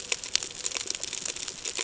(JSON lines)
{"label": "ambient", "recorder": "HydroMoth"}